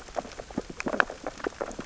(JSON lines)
{"label": "biophony, sea urchins (Echinidae)", "recorder": "SoundTrap 600 or HydroMoth"}